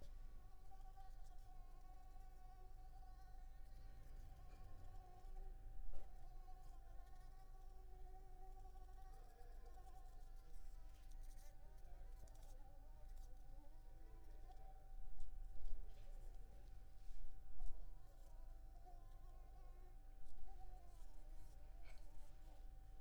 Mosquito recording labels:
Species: Anopheles arabiensis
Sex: female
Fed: unfed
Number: one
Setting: cup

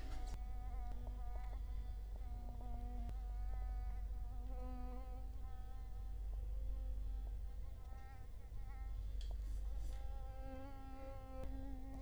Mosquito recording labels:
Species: Culex quinquefasciatus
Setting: cup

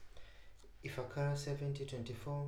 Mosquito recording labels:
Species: Anopheles maculipalpis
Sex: female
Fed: unfed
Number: one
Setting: cup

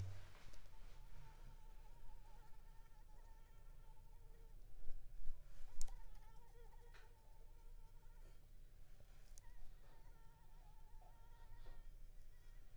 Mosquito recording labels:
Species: Anopheles arabiensis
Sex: female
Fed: unfed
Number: one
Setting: cup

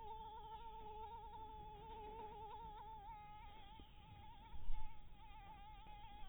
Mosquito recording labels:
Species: Anopheles dirus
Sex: female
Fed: blood-fed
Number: one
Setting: cup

